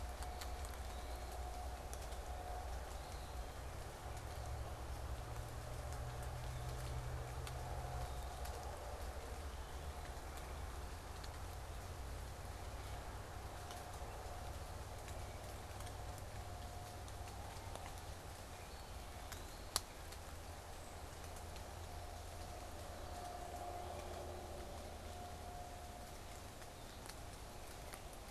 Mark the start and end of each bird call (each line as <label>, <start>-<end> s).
Eastern Wood-Pewee (Contopus virens), 0.0-3.5 s
Eastern Wood-Pewee (Contopus virens), 18.5-20.0 s